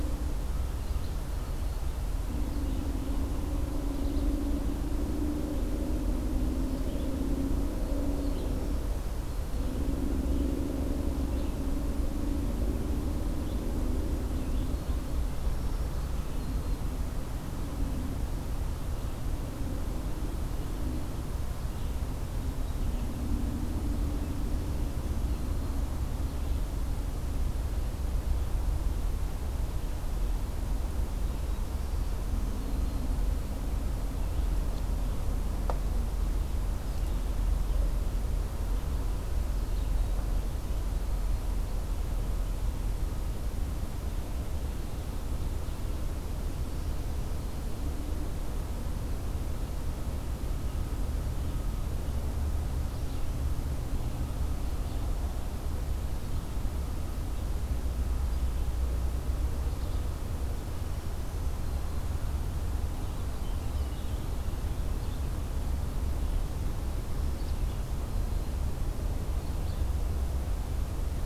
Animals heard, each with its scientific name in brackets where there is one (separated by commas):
Black-throated Green Warbler (Setophaga virens), Red-eyed Vireo (Vireo olivaceus)